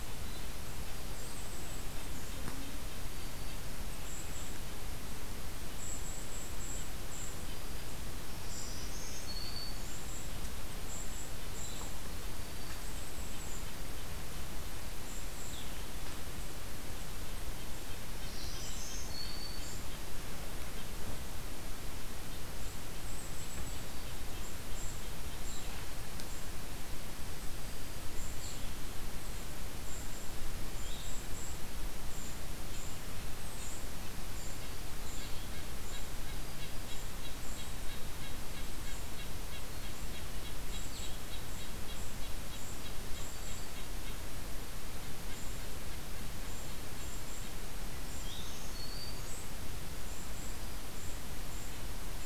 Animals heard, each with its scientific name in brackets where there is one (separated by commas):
Red-breasted Nuthatch (Sitta canadensis), Black-throated Green Warbler (Setophaga virens), Golden-crowned Kinglet (Regulus satrapa)